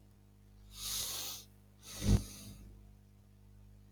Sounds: Sniff